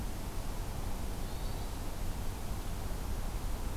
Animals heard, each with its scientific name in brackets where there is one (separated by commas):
Hermit Thrush (Catharus guttatus)